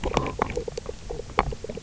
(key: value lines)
label: biophony, knock croak
recorder: SoundTrap 300